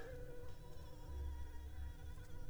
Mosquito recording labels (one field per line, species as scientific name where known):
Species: Anopheles arabiensis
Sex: female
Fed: unfed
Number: one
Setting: cup